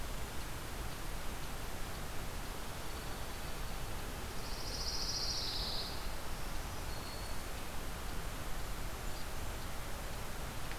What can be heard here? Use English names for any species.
Dark-eyed Junco, Pine Warbler, Black-throated Green Warbler